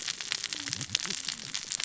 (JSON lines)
{"label": "biophony, cascading saw", "recorder": "SoundTrap 600 or HydroMoth"}